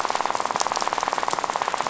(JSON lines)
{"label": "biophony, rattle", "recorder": "SoundTrap 500"}